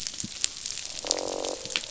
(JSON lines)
{"label": "biophony, croak", "recorder": "SoundTrap 500"}